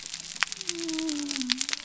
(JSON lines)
{"label": "biophony", "recorder": "SoundTrap 300"}